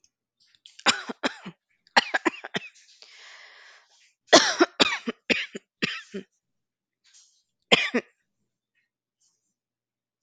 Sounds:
Cough